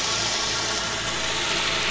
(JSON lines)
{"label": "anthrophony, boat engine", "recorder": "SoundTrap 500"}